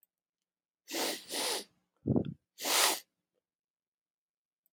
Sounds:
Sniff